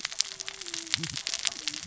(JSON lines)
{"label": "biophony, cascading saw", "recorder": "SoundTrap 600 or HydroMoth"}